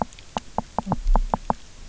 {"label": "biophony, knock croak", "recorder": "SoundTrap 300"}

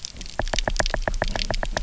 {"label": "biophony, knock", "recorder": "SoundTrap 300"}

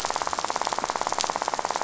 {"label": "biophony, rattle", "recorder": "SoundTrap 500"}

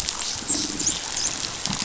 {"label": "biophony, dolphin", "recorder": "SoundTrap 500"}
{"label": "biophony", "recorder": "SoundTrap 500"}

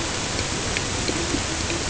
{"label": "ambient", "recorder": "HydroMoth"}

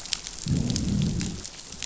{"label": "biophony, growl", "recorder": "SoundTrap 500"}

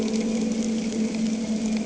{"label": "anthrophony, boat engine", "recorder": "HydroMoth"}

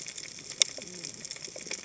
{"label": "biophony, cascading saw", "recorder": "HydroMoth"}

